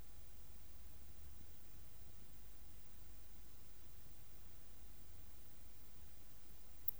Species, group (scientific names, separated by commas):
Poecilimon ornatus, Orthoptera